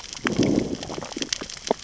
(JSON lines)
{"label": "biophony, growl", "recorder": "SoundTrap 600 or HydroMoth"}